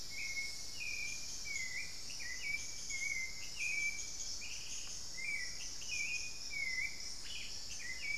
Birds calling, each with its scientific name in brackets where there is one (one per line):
Ash-throated Gnateater (Conopophaga peruviana)
unidentified bird
Hauxwell's Thrush (Turdus hauxwelli)